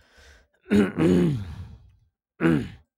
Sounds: Throat clearing